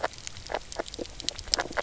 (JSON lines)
{"label": "biophony, grazing", "recorder": "SoundTrap 300"}